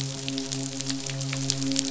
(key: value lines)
label: biophony, midshipman
recorder: SoundTrap 500